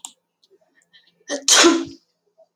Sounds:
Sneeze